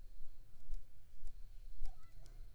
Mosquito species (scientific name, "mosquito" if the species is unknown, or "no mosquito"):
Anopheles arabiensis